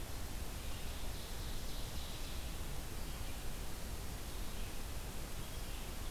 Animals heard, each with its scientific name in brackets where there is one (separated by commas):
Red-eyed Vireo (Vireo olivaceus), Ovenbird (Seiurus aurocapilla)